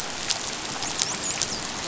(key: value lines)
label: biophony, dolphin
recorder: SoundTrap 500